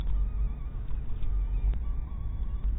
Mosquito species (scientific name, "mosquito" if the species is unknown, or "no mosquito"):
mosquito